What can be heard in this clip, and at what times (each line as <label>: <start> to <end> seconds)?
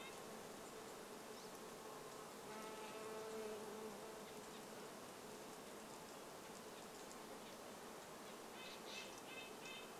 Pine Siskin call: 0 to 2 seconds
Red-breasted Nuthatch song: 0 to 2 seconds
insect buzz: 0 to 10 seconds
Red-breasted Nuthatch call: 4 to 10 seconds
Red-breasted Nuthatch song: 8 to 10 seconds